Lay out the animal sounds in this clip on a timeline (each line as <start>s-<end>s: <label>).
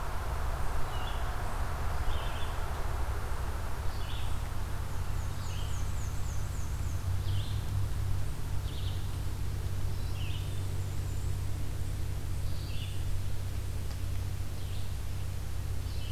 0.0s-16.1s: Red-eyed Vireo (Vireo olivaceus)
4.7s-7.0s: Black-and-white Warbler (Mniotilta varia)
10.5s-11.4s: Black-and-white Warbler (Mniotilta varia)